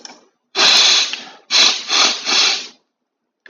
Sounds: Sniff